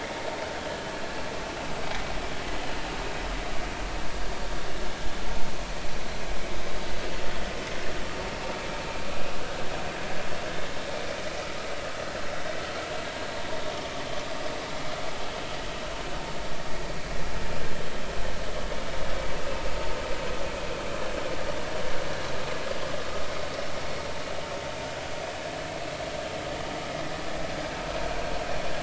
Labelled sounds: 2.6	2.8	vessel noise, 2.8 to 3.1 kHz
9.1	9.4	vessel noise, 2.4 to 2.5 kHz

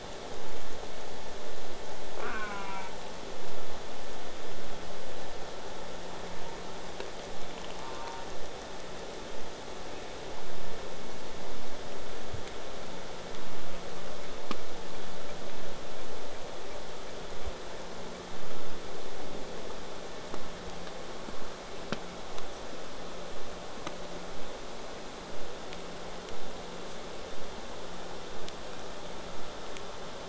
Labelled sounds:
2.2	2.9	killer whale, southern resident, J pod, call S04, 0.23 to 3.0 kHz
7.7	8.3	killer whale, southern resident, J pod, call S04, 0.44 to 1.9 kHz
25.3	30.2	vessel noise, 0 to 8.0 kHz

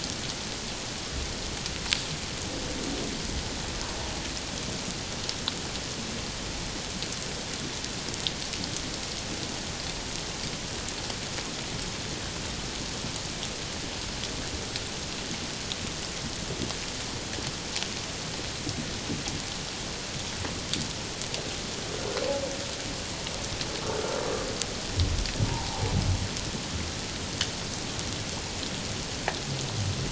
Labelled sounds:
25.5	25.9	humpback whale, 0.78 to 1.0 kHz

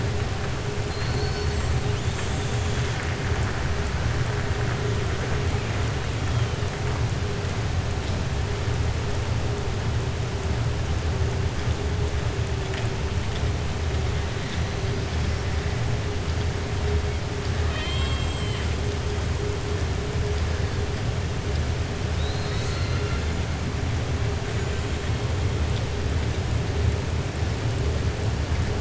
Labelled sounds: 0.8	1.6	killer whale, 3.5 to 6.2 kHz
17.6	18.7	killer whale, 1.0 to 4.9 kHz

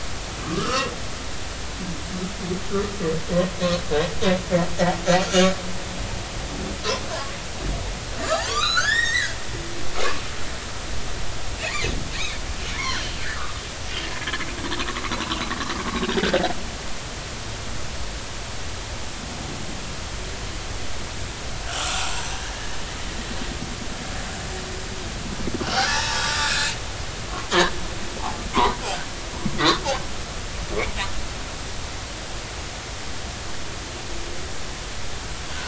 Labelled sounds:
0.4	0.9	humpback whale, 1.0 to 2.9 kHz
5.1	5.5	humpback whale, 4.2 to 4.6 kHz
7.1	9.4	humpback whale, 0.80 to 7.8 kHz
11.5	12.4	humpback whale, 1.8 to 2.9 kHz
12.8	13.6	humpback whale, 1.1 to 3.4 kHz
16.1	16.4	humpback whale, 4.6 to 4.8 kHz
21.8	22.8	humpback whale, 1.1 to 1.9 kHz
25.6	26.8	humpback whale, 0.83 to 4.1 kHz
28.5	28.8	humpback whale, 0.80 to 1.2 kHz
29.6	29.8	humpback whale, 3.3 to 3.8 kHz

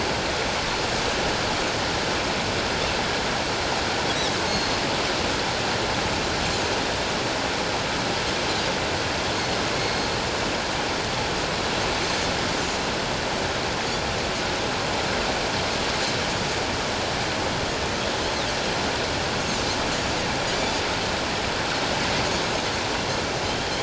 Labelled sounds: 4.5	4.7	Pacific white-sided dolphin, 4.2 to 4.4 kHz
9.8	10.1	Pacific white-sided dolphin, 4.2 to 4.3 kHz

